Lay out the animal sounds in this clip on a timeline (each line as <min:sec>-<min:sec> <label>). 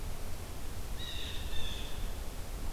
0:00.7-0:02.2 Blue Jay (Cyanocitta cristata)